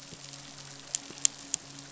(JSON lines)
{"label": "biophony, midshipman", "recorder": "SoundTrap 500"}